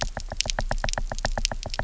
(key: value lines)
label: biophony, knock
recorder: SoundTrap 300